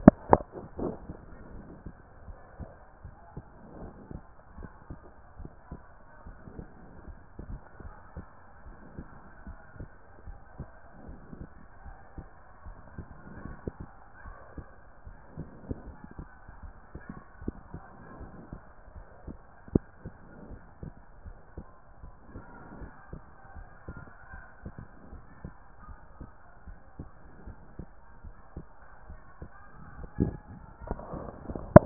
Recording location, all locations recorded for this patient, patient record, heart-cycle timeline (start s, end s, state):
pulmonary valve (PV)
pulmonary valve (PV)+tricuspid valve (TV)+mitral valve (MV)
#Age: nan
#Sex: Female
#Height: nan
#Weight: nan
#Pregnancy status: True
#Murmur: Absent
#Murmur locations: nan
#Most audible location: nan
#Systolic murmur timing: nan
#Systolic murmur shape: nan
#Systolic murmur grading: nan
#Systolic murmur pitch: nan
#Systolic murmur quality: nan
#Diastolic murmur timing: nan
#Diastolic murmur shape: nan
#Diastolic murmur grading: nan
#Diastolic murmur pitch: nan
#Diastolic murmur quality: nan
#Outcome: Normal
#Campaign: 2014 screening campaign
0.00	0.18	S1
0.18	0.28	systole
0.28	0.46	S2
0.46	0.76	diastole
0.76	0.98	S1
0.98	1.08	systole
1.08	1.18	S2
1.18	1.50	diastole
1.50	1.66	S1
1.66	1.84	systole
1.84	1.94	S2
1.94	2.26	diastole
2.26	2.36	S1
2.36	2.60	systole
2.60	2.70	S2
2.70	3.06	diastole
3.06	3.14	S1
3.14	3.36	systole
3.36	3.44	S2
3.44	3.76	diastole
3.76	3.92	S1
3.92	4.10	systole
4.10	4.22	S2
4.22	4.58	diastole
4.58	4.70	S1
4.70	4.92	systole
4.92	5.00	S2
5.00	5.40	diastole
5.40	5.50	S1
5.50	5.72	systole
5.72	5.82	S2
5.82	6.28	diastole
6.28	6.36	S1
6.36	6.56	systole
6.56	6.68	S2
6.68	7.08	diastole
7.08	7.18	S1
7.18	7.40	systole
7.40	7.60	S2
7.60	7.84	diastole
7.84	7.94	S1
7.94	8.18	systole
8.18	8.26	S2
8.26	8.68	diastole
8.68	8.76	S1
8.76	8.96	systole
8.96	9.08	S2
9.08	9.46	diastole
9.46	9.58	S1
9.58	9.80	systole
9.80	9.90	S2
9.90	10.26	diastole
10.26	10.38	S1
10.38	10.58	systole
10.58	10.68	S2
10.68	11.04	diastole
11.04	11.18	S1
11.18	11.34	systole
11.34	11.48	S2
11.48	11.84	diastole
11.84	11.96	S1
11.96	12.18	systole
12.18	12.28	S2
12.28	12.66	diastole
12.66	12.76	S1
12.76	12.96	systole
12.96	13.06	S2
13.06	13.30	diastole
13.30	13.58	S1
13.58	13.80	systole
13.80	13.88	S2
13.88	14.26	diastole
14.26	14.36	S1
14.36	14.56	systole
14.56	14.66	S2
14.66	15.08	diastole
15.08	15.16	S1
15.16	15.36	systole
15.36	15.50	S2
15.50	15.68	diastole
15.68	15.96	S1
15.96	16.20	systole
16.20	16.28	S2
16.28	16.64	diastole
16.64	16.74	S1
16.74	16.96	systole
16.96	17.04	S2
17.04	17.42	diastole
17.42	17.56	S1
17.56	17.74	systole
17.74	17.82	S2
17.82	18.14	diastole
18.14	18.32	S1
18.32	18.52	systole
18.52	18.60	S2
18.60	18.96	diastole
18.96	19.04	S1
19.04	19.26	systole
19.26	19.38	S2
19.38	19.74	diastole
19.74	19.84	S1
19.84	20.06	systole
20.06	20.14	S2
20.14	20.42	diastole
20.42	20.60	S1
20.60	20.84	systole
20.84	20.94	S2
20.94	21.26	diastole
21.26	21.36	S1
21.36	21.58	systole
21.58	21.66	S2
21.66	22.04	diastole
22.04	22.12	S1
22.12	22.34	systole
22.34	22.44	S2
22.44	22.72	diastole
22.72	22.90	S1
22.90	23.14	systole
23.14	23.22	S2
23.22	23.56	diastole
23.56	23.68	S1
23.68	23.90	systole
23.90	24.04	S2
24.04	24.34	diastole
24.34	24.42	S1
24.42	24.66	systole
24.66	24.74	S2
24.74	25.12	diastole
25.12	25.22	S1
25.22	25.44	systole
25.44	25.54	S2
25.54	25.90	diastole
25.90	25.96	S1
25.96	26.20	systole
26.20	26.30	S2
26.30	26.68	diastole
26.68	26.76	S1
26.76	27.00	systole
27.00	27.10	S2
27.10	27.46	diastole
27.46	27.56	S1
27.56	27.80	systole
27.80	27.88	S2
27.88	28.26	diastole
28.26	28.34	S1
28.34	28.58	systole
28.58	28.66	S2
28.66	29.08	diastole
29.08	29.20	S1
29.20	29.42	systole
29.42	29.50	S2
29.50	29.92	diastole
29.92	30.10	S1
30.10	30.18	systole
30.18	30.42	S2
30.42	30.82	diastole
30.82	31.26	S1
31.26	31.48	systole
31.48	31.86	S2